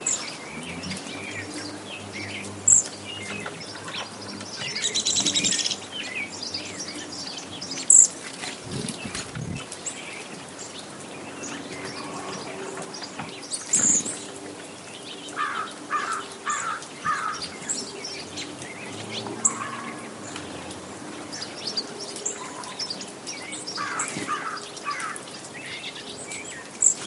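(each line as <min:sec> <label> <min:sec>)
0:00.0 A bird making unknown sounds. 0:00.2
0:00.3 Birds singing and chirping cheerfully. 0:04.6
0:02.6 A bird is singing. 0:02.9
0:04.7 Birds singing loudly. 0:05.8
0:05.9 Birds singing and chirping cheerfully. 0:07.8
0:07.9 A bird is singing. 0:08.1
0:08.3 A bird makes unknown sounds. 0:09.2
0:09.3 Birds singing and chirping cheerfully. 0:13.7
0:13.7 A bird makes unknown sounds. 0:14.2
0:14.3 Birds singing and chirping cheerfully. 0:15.2
0:15.3 A bird is making unknown sounds. 0:18.0
0:18.0 Birds singing and chirping cheerfully. 0:26.8
0:19.2 A bird is making unknown sounds. 0:19.7
0:23.5 A parrot speaks loudly. 0:25.4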